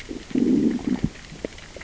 {"label": "biophony, growl", "recorder": "SoundTrap 600 or HydroMoth"}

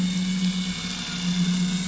{"label": "anthrophony, boat engine", "recorder": "SoundTrap 500"}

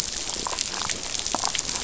{"label": "biophony, damselfish", "recorder": "SoundTrap 500"}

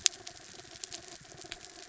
{"label": "anthrophony, mechanical", "recorder": "SoundTrap 300"}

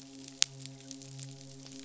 {"label": "biophony, midshipman", "recorder": "SoundTrap 500"}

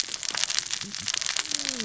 {"label": "biophony, cascading saw", "recorder": "SoundTrap 600 or HydroMoth"}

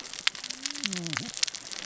{"label": "biophony, cascading saw", "recorder": "SoundTrap 600 or HydroMoth"}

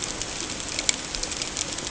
{"label": "ambient", "recorder": "HydroMoth"}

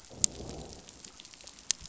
{"label": "biophony, growl", "recorder": "SoundTrap 500"}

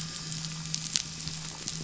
{"label": "anthrophony, boat engine", "recorder": "SoundTrap 500"}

